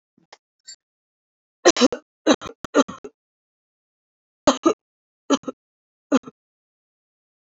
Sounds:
Cough